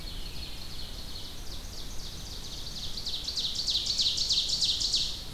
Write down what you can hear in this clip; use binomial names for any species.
Piranga olivacea, Seiurus aurocapilla